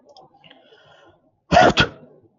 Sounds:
Sneeze